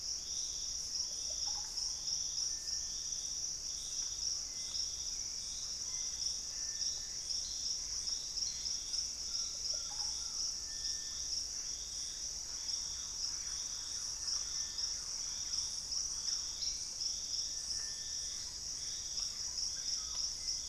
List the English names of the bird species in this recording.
Russet-backed Oropendola, Hauxwell's Thrush, Purple-throated Fruitcrow, Gray Antbird, Collared Trogon, Thrush-like Wren, Screaming Piha